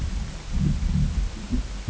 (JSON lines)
{"label": "ambient", "recorder": "HydroMoth"}